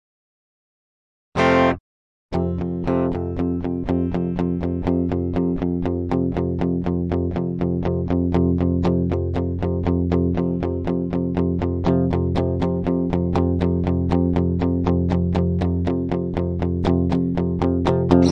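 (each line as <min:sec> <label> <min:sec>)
0:01.3 An electric guitar plays a single chord. 0:01.8
0:02.3 An electric guitar is being played rhythmically. 0:18.3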